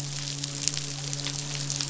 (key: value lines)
label: biophony, midshipman
recorder: SoundTrap 500